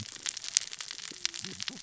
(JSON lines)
{"label": "biophony, cascading saw", "recorder": "SoundTrap 600 or HydroMoth"}